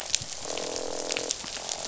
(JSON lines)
{"label": "biophony, croak", "recorder": "SoundTrap 500"}